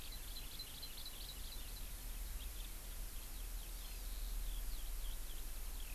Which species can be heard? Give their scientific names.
Alauda arvensis, Chlorodrepanis virens